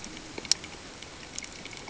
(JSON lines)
{"label": "ambient", "recorder": "HydroMoth"}